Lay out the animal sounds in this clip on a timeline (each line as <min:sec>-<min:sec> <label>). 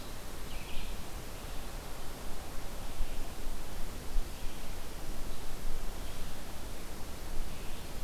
0:00.4-0:08.0 Red-eyed Vireo (Vireo olivaceus)